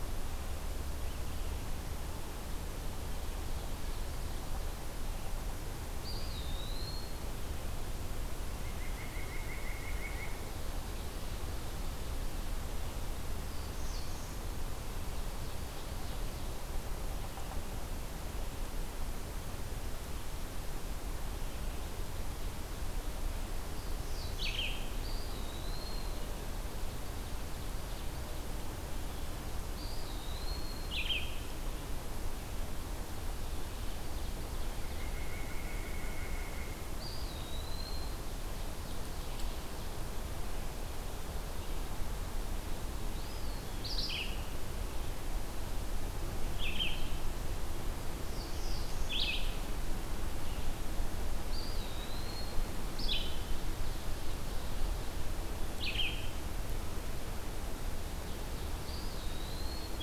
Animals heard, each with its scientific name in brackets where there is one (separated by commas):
Eastern Wood-Pewee (Contopus virens), White-breasted Nuthatch (Sitta carolinensis), Blue-headed Vireo (Vireo solitarius), Black-throated Blue Warbler (Setophaga caerulescens), Ovenbird (Seiurus aurocapilla)